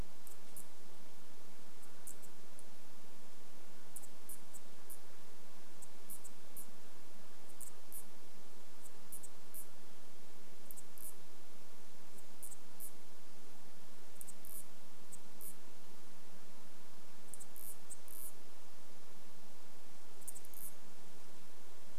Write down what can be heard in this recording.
unidentified bird chip note, Brown Creeper call